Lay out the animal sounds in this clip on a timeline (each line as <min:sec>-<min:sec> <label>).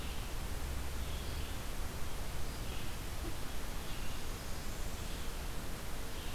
0:00.7-0:06.3 Red-eyed Vireo (Vireo olivaceus)
0:03.7-0:05.4 Blackburnian Warbler (Setophaga fusca)